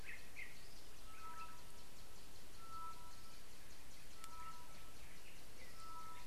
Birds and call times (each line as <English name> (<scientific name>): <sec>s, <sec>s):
Tropical Boubou (Laniarius major): 4.4s